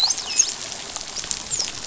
{"label": "biophony, dolphin", "recorder": "SoundTrap 500"}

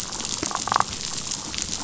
{"label": "biophony, damselfish", "recorder": "SoundTrap 500"}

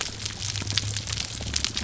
{"label": "biophony", "recorder": "SoundTrap 300"}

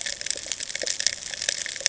{"label": "ambient", "recorder": "HydroMoth"}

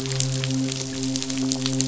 {"label": "biophony, midshipman", "recorder": "SoundTrap 500"}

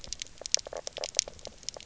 {"label": "biophony, knock croak", "recorder": "SoundTrap 300"}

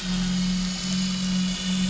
{"label": "anthrophony, boat engine", "recorder": "SoundTrap 500"}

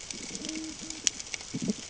{"label": "ambient", "recorder": "HydroMoth"}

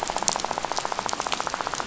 {"label": "biophony, rattle", "recorder": "SoundTrap 500"}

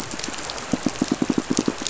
{"label": "biophony, pulse", "recorder": "SoundTrap 500"}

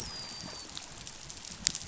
{"label": "biophony, dolphin", "recorder": "SoundTrap 500"}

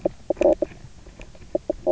{"label": "biophony, knock croak", "recorder": "SoundTrap 300"}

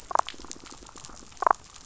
{"label": "biophony, damselfish", "recorder": "SoundTrap 500"}
{"label": "biophony", "recorder": "SoundTrap 500"}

